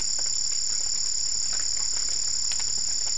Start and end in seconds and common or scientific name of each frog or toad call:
none